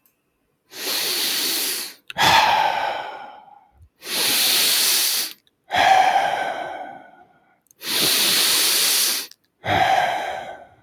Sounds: Sniff